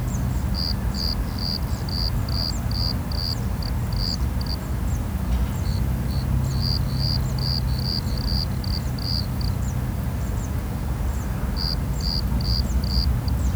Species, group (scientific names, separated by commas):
Eumodicogryllus bordigalensis, Orthoptera